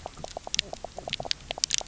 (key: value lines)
label: biophony, knock croak
recorder: SoundTrap 300